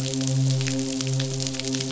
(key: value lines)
label: biophony, midshipman
recorder: SoundTrap 500